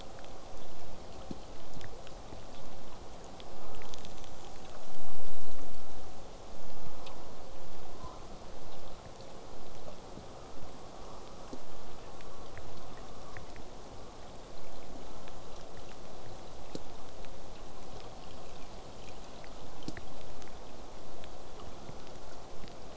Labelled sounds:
3.5	4.1	killer whale, southern resident, J pod, call S04, 0.25 to 1.5 kHz
8.0	8.3	killer whale, southern resident, J pod, 0.47 to 1.2 kHz

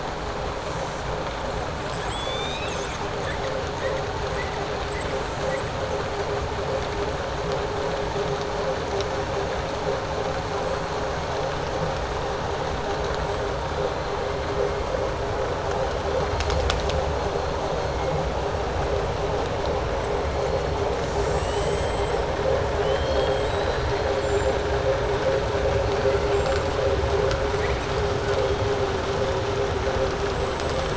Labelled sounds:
20.9	22.2	killer whale, southern resident, 4.9 to 7.9 kHz
22.7	24.0	killer whale, southern resident, 2.7 to 5.4 kHz

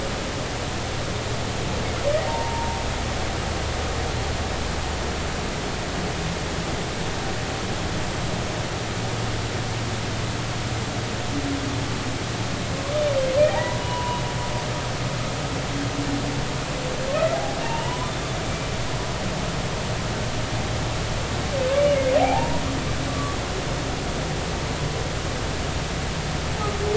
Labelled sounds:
2.3	2.8	humpback whale, 0.80 to 0.99 kHz
13.4	14.2	humpback whale, 0.80 to 2.0 kHz
17.6	18.1	humpback whale, 0.86 to 3.1 kHz
22.2	23.4	humpback whale, 0.80 to 1.2 kHz

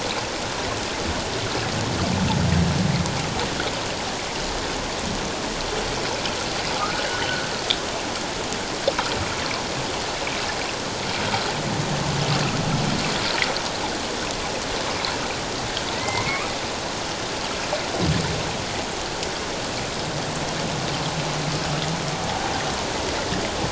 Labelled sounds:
6.8	7.5	humpback whale, 1.2 to 1.6 kHz
15.9	16.5	humpback whale, 0.91 to 2.5 kHz

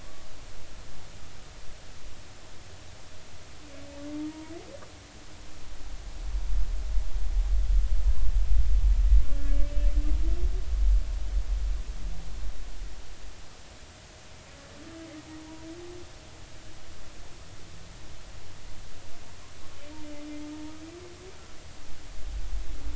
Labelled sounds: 4.3	4.5	humpback whale, 0.90 to 0.99 kHz
9.5	9.7	humpback whale, 2.2 to 2.4 kHz
15.4	15.7	humpback whale, 0.90 to 1.0 kHz

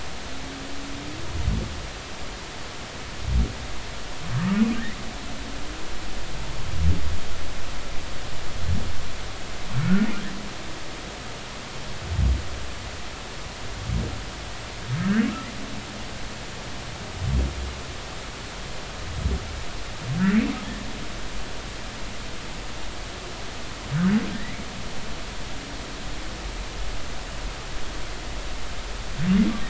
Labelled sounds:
4.4	4.6	humpback whale, 1.1 to 1.3 kHz
9.8	10.1	humpback whale, 1.3 to 1.6 kHz
15.0	15.3	humpback whale, 1.2 to 2.0 kHz

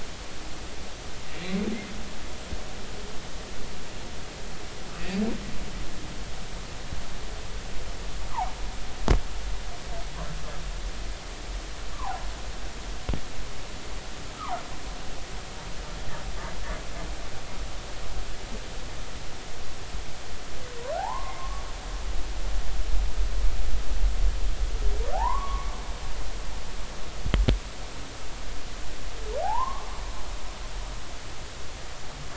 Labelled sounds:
4.9	5.2	humpback whale, 2.4 to 2.7 kHz
8.3	8.5	humpback whale, 0.80 to 1.4 kHz
11.9	12.2	humpback whale, 0.80 to 1.2 kHz
21.0	21.6	humpback whale, 0.80 to 1.2 kHz
25.1	25.8	humpback whale, 0.80 to 2.3 kHz
29.4	29.9	humpback whale, 0.80 to 1.2 kHz

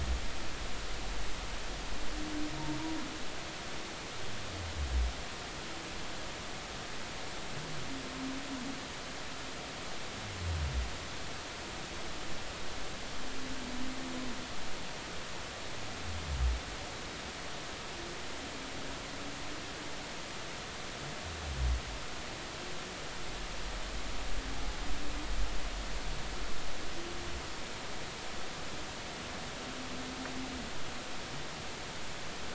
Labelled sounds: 24.5	24.8	humpback whale, 0.80 to 0.86 kHz

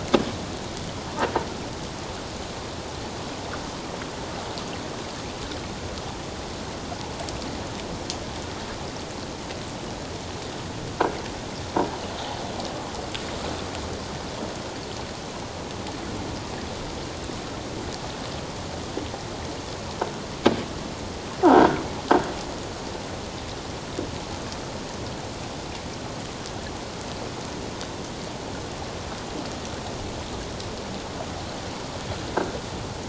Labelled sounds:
21.4	21.8	croaking sound likely from a nearby submerged object, 1.2 to 1.6 kHz

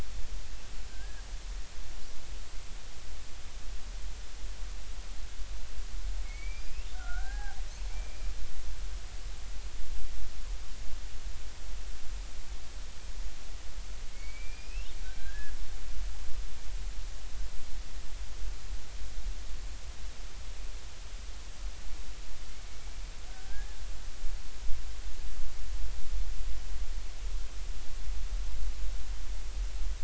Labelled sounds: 0.9	1.2	killer whale, Bigg's (transient), 1.5 to 1.7 kHz
6.2	7.6	killer whale, Bigg's (transient), 0.80 to 5.1 kHz
7.9	8.3	killer whale, Bigg's (transient), 2.2 to 2.5 kHz
14.1	15.5	killer whale, Bigg's (transient), 1.5 to 5.1 kHz
23.3	23.8	killer whale, Bigg's (transient), 1.4 to 1.8 kHz

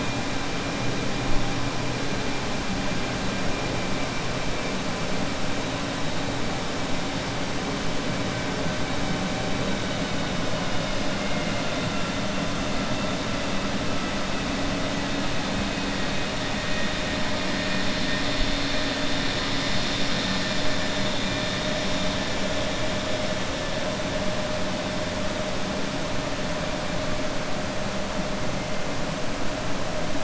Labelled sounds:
11.1	11.8	vessel noise, 1.4 to 2.9 kHz

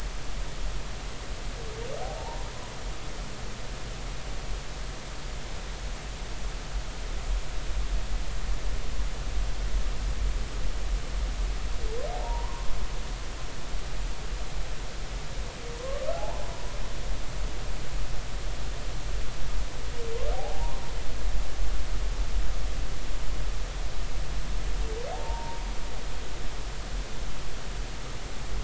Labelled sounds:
2.2	2.5	humpback whale, 0.80 to 1.0 kHz
12.1	12.7	humpback whale, 0.80 to 1.1 kHz
15.8	16.7	humpback whale, 0.80 to 1.2 kHz
20.3	20.8	humpback whale, 0.80 to 1.1 kHz
25.1	25.7	humpback whale, 0.80 to 1.1 kHz

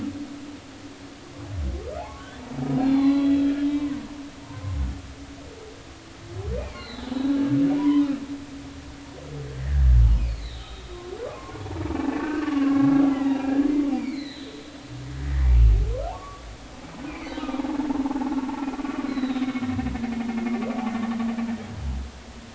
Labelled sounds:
2.0	4.0	humpback whale, 0.80 to 4.4 kHz
6.6	7.1	humpback whale, 1.9 to 4.4 kHz
7.8	8.1	humpback whale, 0.93 to 1.1 kHz
10.3	11.6	humpback whale, 0.99 to 4.5 kHz
12.1	13.7	humpback whale, 1.0 to 2.1 kHz
14.0	14.7	humpback whale, 1.7 to 4.3 kHz
15.2	16.4	humpback whale, 0.80 to 2.0 kHz
17.1	17.5	humpback whale, 1.9 to 4.3 kHz
18.1	18.4	humpback whale, 0.80 to 1.1 kHz
19.1	19.5	humpback whale, 3.5 to 4.2 kHz

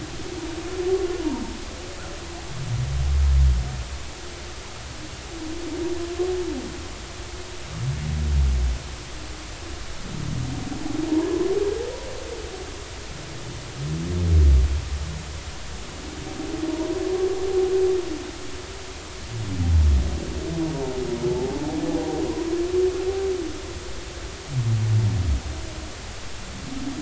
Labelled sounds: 21.3	21.6	humpback whale, 0.80 to 0.93 kHz

